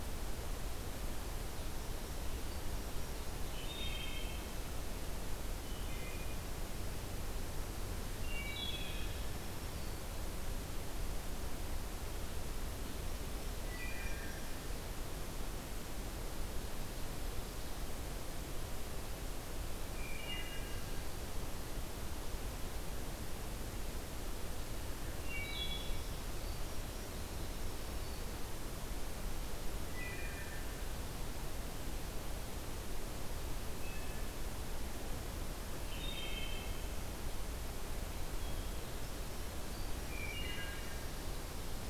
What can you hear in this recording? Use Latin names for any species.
Hylocichla mustelina, Setophaga virens